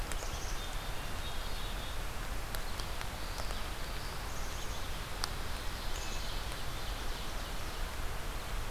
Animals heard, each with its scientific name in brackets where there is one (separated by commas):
Black-capped Chickadee (Poecile atricapillus), Ovenbird (Seiurus aurocapilla), Common Yellowthroat (Geothlypis trichas)